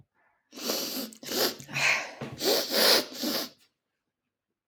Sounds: Sniff